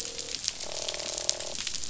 {"label": "biophony, croak", "recorder": "SoundTrap 500"}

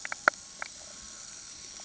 {"label": "anthrophony, boat engine", "recorder": "HydroMoth"}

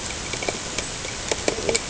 {"label": "ambient", "recorder": "HydroMoth"}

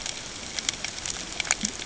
{"label": "ambient", "recorder": "HydroMoth"}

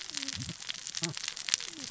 {"label": "biophony, cascading saw", "recorder": "SoundTrap 600 or HydroMoth"}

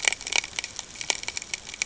{"label": "ambient", "recorder": "HydroMoth"}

